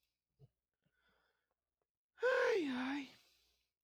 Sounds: Sigh